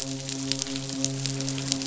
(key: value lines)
label: biophony, midshipman
recorder: SoundTrap 500